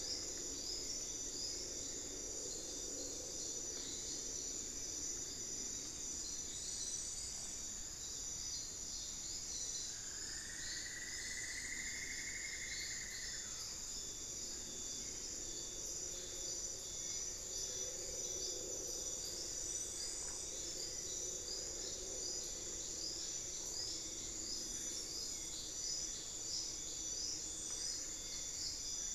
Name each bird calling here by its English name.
Cinnamon-throated Woodcreeper, Hauxwell's Thrush